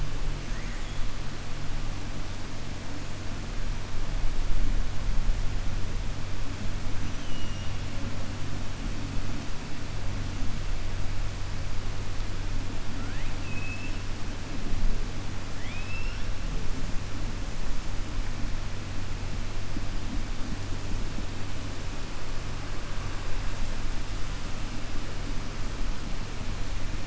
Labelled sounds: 7.0	7.7	killer whale, 2.8 to 6.2 kHz
13.4	14.0	killer whale, 2.5 to 3.0 kHz
15.5	16.2	killer whale, 1.8 to 5.5 kHz

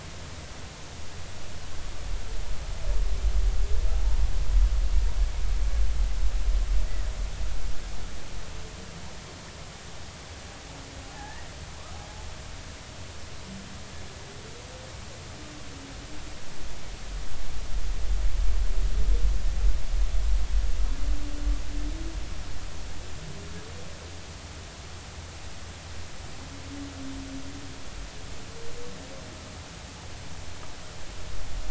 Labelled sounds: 11.0	11.5	humpback whale, 0.80 to 2.0 kHz

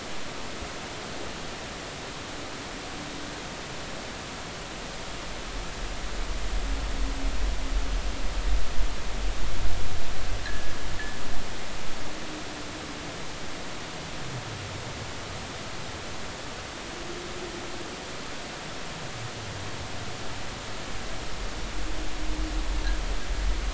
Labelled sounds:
10.4	10.7	fishing gear, 1.6 to 2.0 kHz

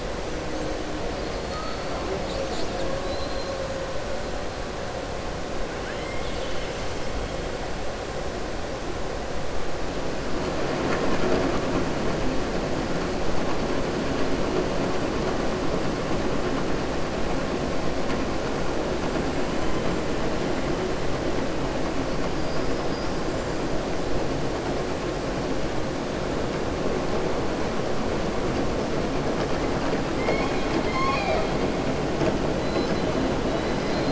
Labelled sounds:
3.0	3.5	killer whale, southern resident, 3.9 to 5.0 kHz
5.7	6.8	killer whale, southern resident, 1.5 to 4.5 kHz
22.4	23.1	killer whale, southern resident, 4.7 to 5.6 kHz
32.6	33.0	killer whale, southern resident, 4.0 to 6.1 kHz

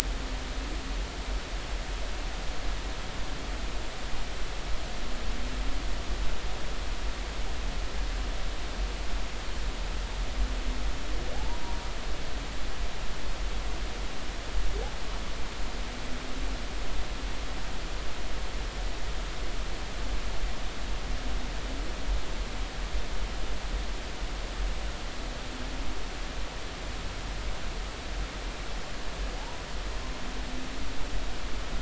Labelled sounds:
11.3	11.8	humpback whale, 0.80 to 1.0 kHz
29.4	29.6	humpback whale, 0.80 to 1.0 kHz

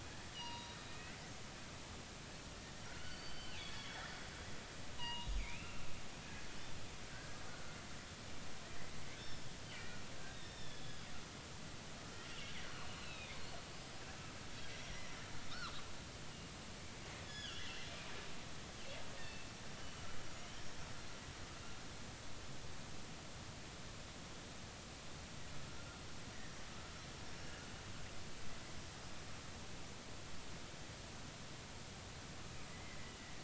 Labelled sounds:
0.3	1.1	killer whale, northern resident, G clan, 0.90 to 6.0 kHz
2.9	4.0	killer whale, northern resident, G clan, 1.3 to 4.7 kHz
5.0	5.9	killer whale, northern resident, G clan, 0.86 to 4.0 kHz
7.1	7.4	killer whale, northern resident, G clan, 1.4 to 1.7 kHz
9.2	11.1	killer whale, northern resident, G clan, 1.5 to 5.5 kHz
12.3	13.4	killer whale, northern resident, G clan, 2.1 to 4.3 kHz
13.7	14.0	killer whale, northern resident, G clan, 5.0 to 5.1 kHz
14.7	15.0	killer whale, northern resident, G clan, 5.6 to 5.7 kHz
15.5	15.8	killer whale, northern resident, G clan, 1.0 to 1.6 kHz
17.2	18.1	killer whale, northern resident, G clan, 1.3 to 5.2 kHz
19.1	19.5	killer whale, northern resident, G clan, 2.6 to 4.7 kHz
32.7	33.0	killer whale, northern resident, G clan, 2.0 to 2.2 kHz

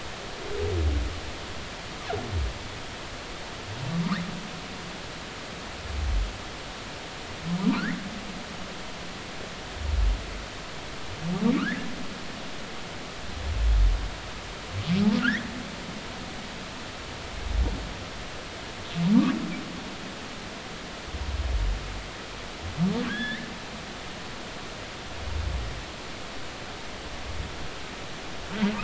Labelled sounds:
7.8	8.0	humpback whale, 1.3 to 2.1 kHz
11.6	11.9	humpback whale, 1.1 to 2.1 kHz
15.2	15.5	humpback whale, 1.2 to 2.2 kHz
23.1	23.5	humpback whale, 1.5 to 3.6 kHz

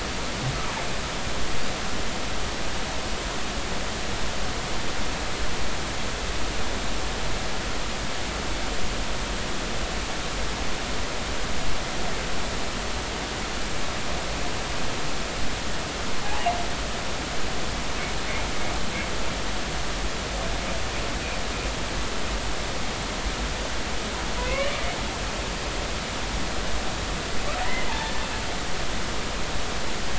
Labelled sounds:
24.4	24.7	humpback whale, 0.96 to 3.1 kHz
25.4	25.7	humpback whale, 2.0 to 2.4 kHz
27.6	28.2	humpback whale, 0.80 to 2.1 kHz

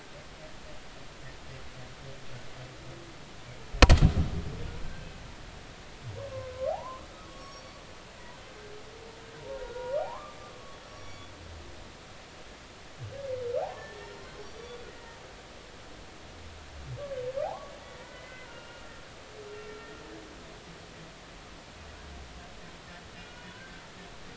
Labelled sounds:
4.8	5.2	humpback whale, 1.5 to 2.7 kHz
6.1	7.8	humpback whale, 0.80 to 5.7 kHz
9.4	10.4	humpback whale, 0.80 to 1.5 kHz
10.9	11.3	humpback whale, 2.2 to 6.8 kHz
13.6	15.2	humpback whale, 0.80 to 5.8 kHz
15.5	15.8	humpback whale, 3.4 to 3.5 kHz
17.4	18.8	humpback whale, 0.80 to 2.9 kHz
23.4	23.8	humpback whale, 0.93 to 3.0 kHz

